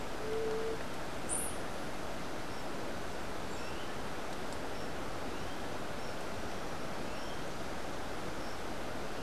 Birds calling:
White-eared Ground-Sparrow (Melozone leucotis)

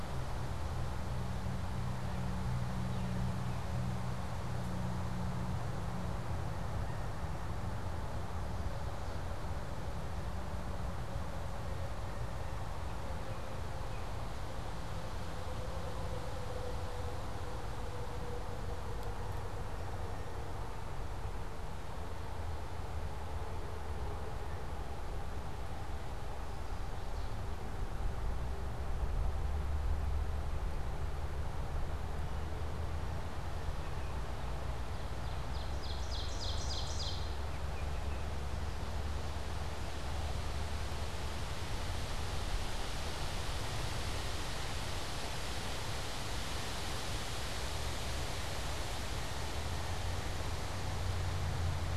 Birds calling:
Ovenbird (Seiurus aurocapilla)
Baltimore Oriole (Icterus galbula)

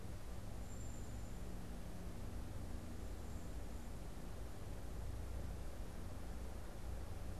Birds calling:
unidentified bird

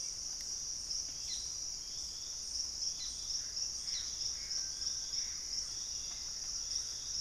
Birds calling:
Thrush-like Wren (Campylorhynchus turdinus)
Collared Trogon (Trogon collaris)
Gray Antbird (Cercomacra cinerascens)
Little Tinamou (Crypturellus soui)

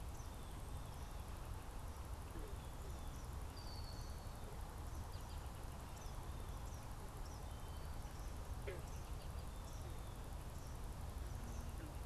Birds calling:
Red-winged Blackbird (Agelaius phoeniceus)
Eastern Kingbird (Tyrannus tyrannus)

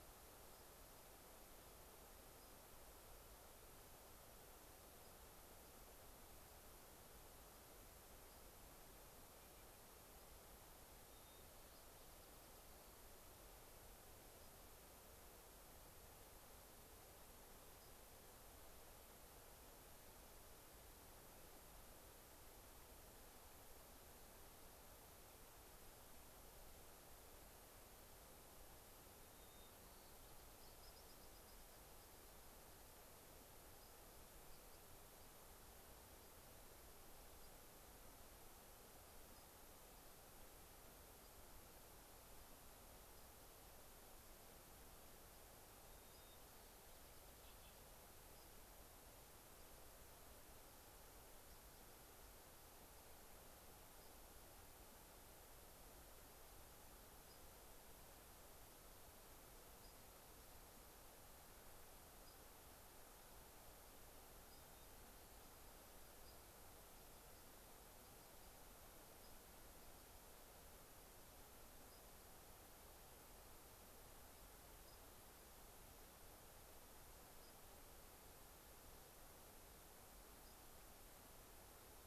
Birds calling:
White-crowned Sparrow (Zonotrichia leucophrys)

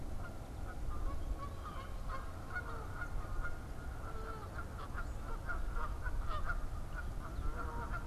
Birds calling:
Canada Goose (Branta canadensis)

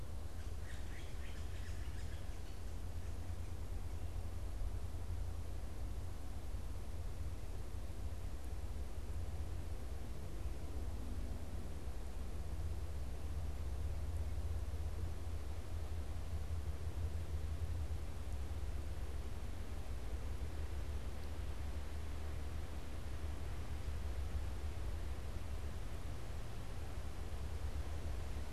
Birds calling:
Yellow-bellied Sapsucker (Sphyrapicus varius)

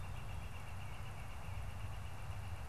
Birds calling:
Northern Flicker (Colaptes auratus)
Tufted Titmouse (Baeolophus bicolor)

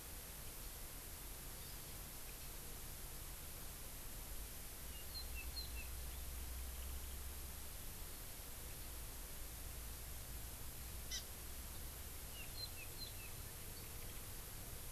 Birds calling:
Hawaii Amakihi (Chlorodrepanis virens)

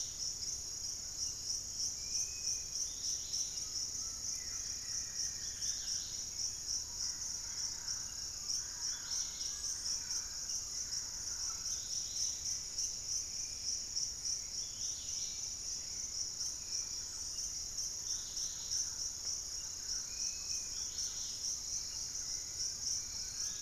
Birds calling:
Buff-throated Woodcreeper (Xiphorhynchus guttatus)
Hauxwell's Thrush (Turdus hauxwelli)
Undulated Tinamou (Crypturellus undulatus)
Fasciated Antshrike (Cymbilaimus lineatus)
Dusky-capped Greenlet (Pachysylvia hypoxantha)
Thrush-like Wren (Campylorhynchus turdinus)
Dusky-capped Flycatcher (Myiarchus tuberculifer)

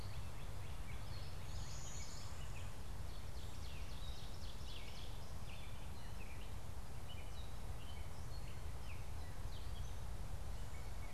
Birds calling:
Blue-winged Warbler (Vermivora cyanoptera)
Northern Cardinal (Cardinalis cardinalis)
Gray Catbird (Dumetella carolinensis)
Ovenbird (Seiurus aurocapilla)

